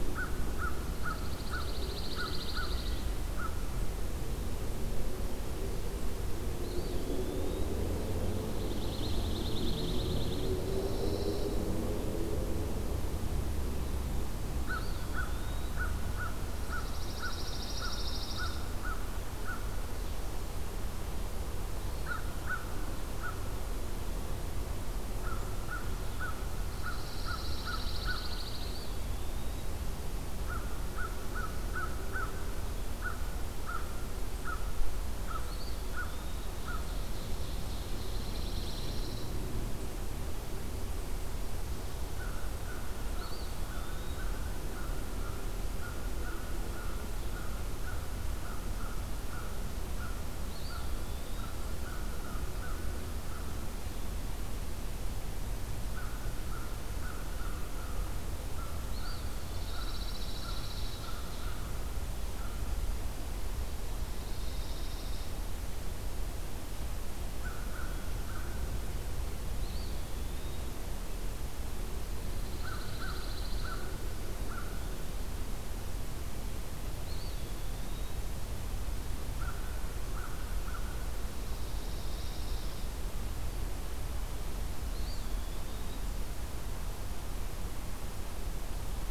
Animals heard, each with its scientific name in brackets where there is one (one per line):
Ovenbird (Seiurus aurocapilla)
Pine Warbler (Setophaga pinus)
Eastern Wood-Pewee (Contopus virens)
American Crow (Corvus brachyrhynchos)